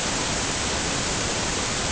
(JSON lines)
{"label": "ambient", "recorder": "HydroMoth"}